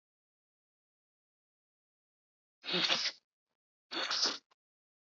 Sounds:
Sniff